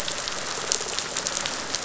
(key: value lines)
label: biophony, rattle response
recorder: SoundTrap 500